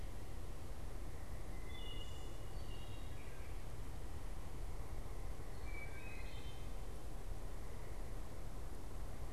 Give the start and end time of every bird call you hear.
0.0s-9.3s: Wood Thrush (Hylocichla mustelina)

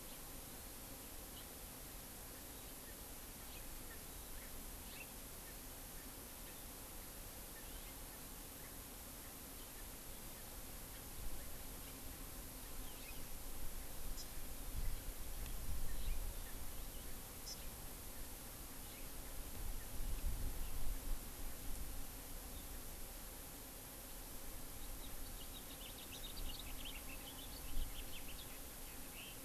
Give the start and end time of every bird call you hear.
0.0s-0.3s: House Finch (Haemorhous mexicanus)
1.3s-1.5s: House Finch (Haemorhous mexicanus)
2.7s-6.1s: Erckel's Francolin (Pternistis erckelii)
3.4s-3.7s: House Finch (Haemorhous mexicanus)
4.8s-5.1s: House Finch (Haemorhous mexicanus)
7.4s-10.0s: Erckel's Francolin (Pternistis erckelii)
7.5s-8.0s: House Finch (Haemorhous mexicanus)
12.7s-13.3s: House Finch (Haemorhous mexicanus)
14.1s-14.3s: Hawaii Amakihi (Chlorodrepanis virens)
14.7s-15.1s: Hawaii Amakihi (Chlorodrepanis virens)
15.8s-16.2s: House Finch (Haemorhous mexicanus)
17.4s-17.6s: Hawaii Amakihi (Chlorodrepanis virens)
18.8s-19.1s: House Finch (Haemorhous mexicanus)
24.7s-29.4s: House Finch (Haemorhous mexicanus)

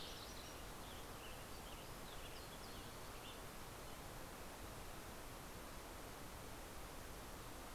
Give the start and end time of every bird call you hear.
0.0s-0.8s: Fox Sparrow (Passerella iliaca)
0.0s-4.8s: Western Tanager (Piranga ludoviciana)

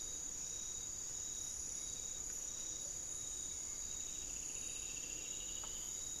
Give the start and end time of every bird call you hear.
3.6s-6.2s: Striped Woodcreeper (Xiphorhynchus obsoletus)

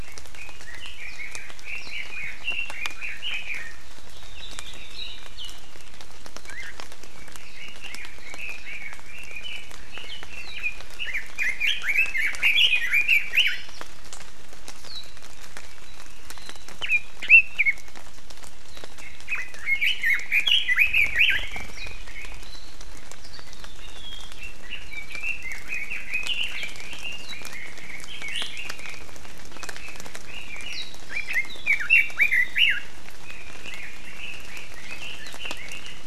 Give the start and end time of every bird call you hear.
0.0s-3.8s: Red-billed Leiothrix (Leiothrix lutea)
7.1s-13.6s: Red-billed Leiothrix (Leiothrix lutea)
16.8s-17.8s: Red-billed Leiothrix (Leiothrix lutea)
19.0s-22.5s: Red-billed Leiothrix (Leiothrix lutea)
24.4s-29.0s: Red-billed Leiothrix (Leiothrix lutea)
29.5s-32.9s: Red-billed Leiothrix (Leiothrix lutea)
33.2s-36.0s: Red-billed Leiothrix (Leiothrix lutea)

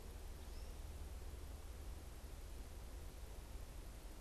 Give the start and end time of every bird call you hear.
0.0s-4.2s: American Goldfinch (Spinus tristis)

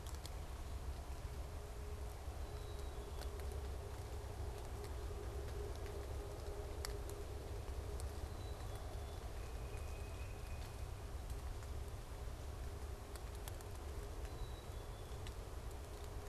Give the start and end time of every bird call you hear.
2.2s-3.5s: Black-capped Chickadee (Poecile atricapillus)
8.1s-9.2s: Black-capped Chickadee (Poecile atricapillus)
9.1s-11.0s: Tufted Titmouse (Baeolophus bicolor)
14.1s-15.2s: Black-capped Chickadee (Poecile atricapillus)

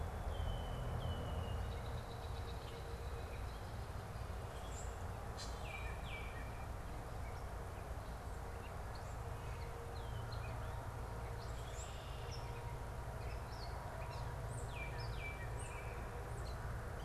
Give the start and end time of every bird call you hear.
0.0s-3.7s: Red-winged Blackbird (Agelaius phoeniceus)
4.3s-5.0s: Common Grackle (Quiscalus quiscula)
5.3s-5.7s: Common Grackle (Quiscalus quiscula)
5.5s-6.8s: Baltimore Oriole (Icterus galbula)
7.2s-17.0s: Gray Catbird (Dumetella carolinensis)
14.5s-16.2s: Baltimore Oriole (Icterus galbula)

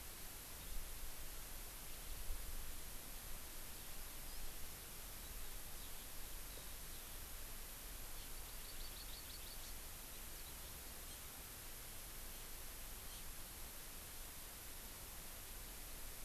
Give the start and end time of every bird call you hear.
5.8s-6.1s: Eurasian Skylark (Alauda arvensis)
6.5s-6.8s: Eurasian Skylark (Alauda arvensis)
8.3s-9.8s: Hawaii Amakihi (Chlorodrepanis virens)
11.1s-11.2s: Hawaii Amakihi (Chlorodrepanis virens)
13.1s-13.2s: Hawaii Amakihi (Chlorodrepanis virens)

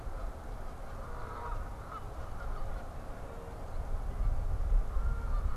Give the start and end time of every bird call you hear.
0.0s-5.6s: Canada Goose (Branta canadensis)

